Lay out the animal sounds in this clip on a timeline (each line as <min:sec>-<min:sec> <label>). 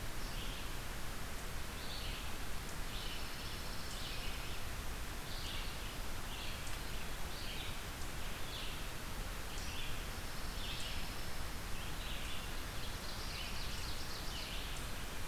0:00.0-0:04.1 Eastern Chipmunk (Tamias striatus)
0:00.0-0:04.4 Red-eyed Vireo (Vireo olivaceus)
0:03.0-0:04.6 Pine Warbler (Setophaga pinus)
0:05.1-0:14.8 Red-eyed Vireo (Vireo olivaceus)
0:10.1-0:11.7 Pine Warbler (Setophaga pinus)
0:12.7-0:14.7 Ovenbird (Seiurus aurocapilla)